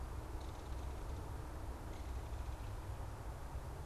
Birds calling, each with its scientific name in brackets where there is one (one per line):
Belted Kingfisher (Megaceryle alcyon)